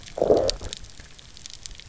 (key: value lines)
label: biophony, low growl
recorder: SoundTrap 300